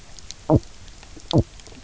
{"label": "biophony", "recorder": "SoundTrap 300"}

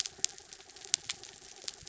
{"label": "anthrophony, mechanical", "recorder": "SoundTrap 300"}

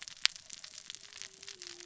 {"label": "biophony, cascading saw", "recorder": "SoundTrap 600 or HydroMoth"}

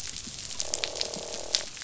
{"label": "biophony, croak", "recorder": "SoundTrap 500"}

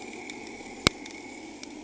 {"label": "anthrophony, boat engine", "recorder": "HydroMoth"}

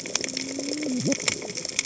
{"label": "biophony, cascading saw", "recorder": "HydroMoth"}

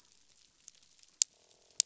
{"label": "biophony, croak", "recorder": "SoundTrap 500"}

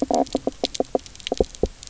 {"label": "biophony, knock croak", "recorder": "SoundTrap 300"}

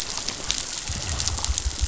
{"label": "biophony", "recorder": "SoundTrap 500"}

